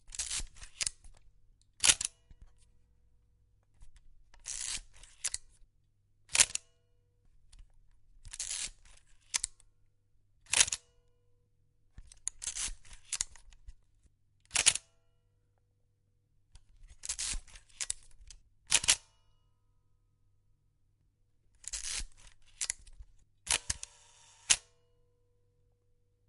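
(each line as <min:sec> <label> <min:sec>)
0:00.1 The quiet scraping sound of a camera film advancing. 0:02.2
0:01.8 A quiet metallic spring sound from a button. 0:02.2
0:04.4 The quiet scraping sound of a camera film advancing. 0:06.7
0:06.3 A quiet metallic spring sound from a button. 0:06.6
0:08.3 The quiet scraping sound of a camera film advancing. 0:10.8
0:10.4 A quiet metallic spring sound from a button. 0:10.8
0:12.2 The quiet scraping sound of a camera film advancing. 0:14.9
0:14.5 A quiet metallic spring sound from a button. 0:14.8
0:17.0 The quiet scraping sound of a camera film advancing. 0:19.0
0:18.7 A quiet metallic spring sound from a button. 0:19.0
0:21.7 The quiet scraping sound of a camera film advancing. 0:24.6
0:23.5 A quiet metallic spring sound from a button. 0:24.6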